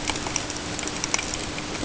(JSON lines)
{"label": "ambient", "recorder": "HydroMoth"}